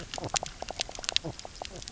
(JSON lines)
{"label": "biophony, knock croak", "recorder": "SoundTrap 300"}